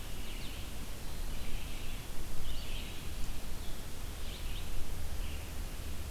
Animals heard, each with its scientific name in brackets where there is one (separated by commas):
Red-eyed Vireo (Vireo olivaceus)